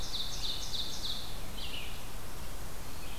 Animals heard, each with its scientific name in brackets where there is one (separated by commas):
Red-eyed Vireo (Vireo olivaceus), Ovenbird (Seiurus aurocapilla)